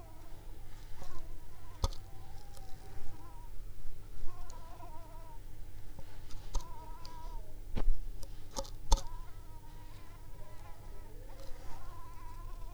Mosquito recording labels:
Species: Anopheles coustani; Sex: female; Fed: unfed; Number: one; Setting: cup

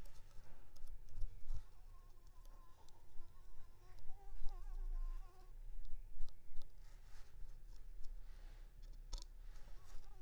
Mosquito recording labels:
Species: Anopheles arabiensis; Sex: female; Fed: unfed; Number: one; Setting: cup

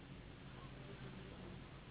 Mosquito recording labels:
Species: Anopheles gambiae s.s.; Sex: female; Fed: unfed; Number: one; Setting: insect culture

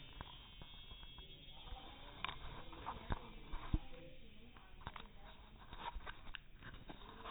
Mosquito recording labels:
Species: no mosquito; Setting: cup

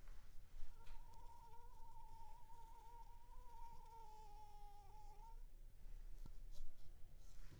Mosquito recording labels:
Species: Anopheles funestus s.s.; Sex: female; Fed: unfed; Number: one; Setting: cup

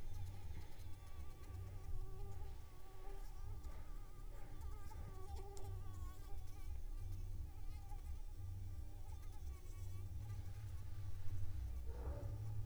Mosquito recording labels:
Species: Anopheles arabiensis; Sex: female; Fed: unfed; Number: one; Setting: cup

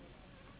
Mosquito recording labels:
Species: Anopheles gambiae s.s.; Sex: female; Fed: unfed; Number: one; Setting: insect culture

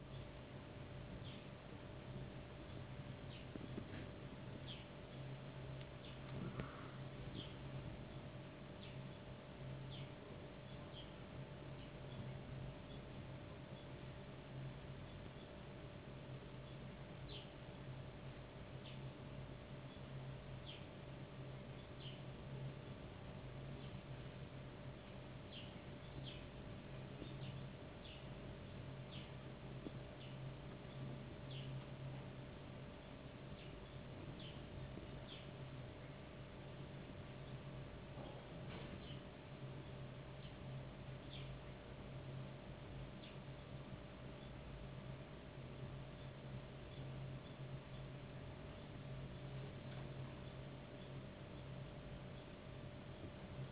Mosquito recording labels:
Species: no mosquito; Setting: insect culture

